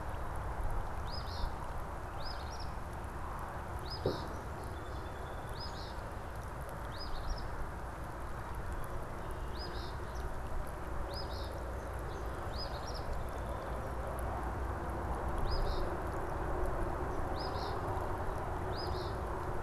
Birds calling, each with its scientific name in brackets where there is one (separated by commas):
Eastern Phoebe (Sayornis phoebe), Song Sparrow (Melospiza melodia)